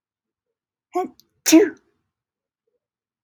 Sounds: Sneeze